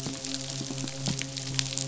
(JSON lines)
{"label": "biophony, midshipman", "recorder": "SoundTrap 500"}
{"label": "biophony", "recorder": "SoundTrap 500"}